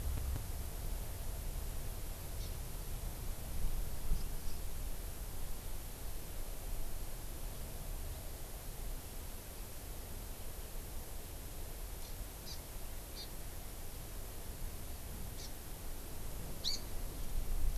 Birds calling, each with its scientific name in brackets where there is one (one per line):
Hawaii Amakihi (Chlorodrepanis virens)